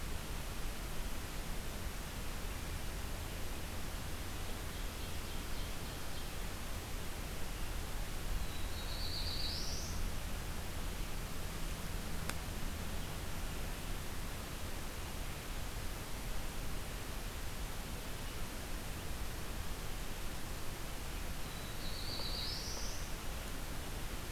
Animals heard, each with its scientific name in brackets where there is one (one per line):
Ovenbird (Seiurus aurocapilla)
Black-throated Blue Warbler (Setophaga caerulescens)